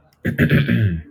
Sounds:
Throat clearing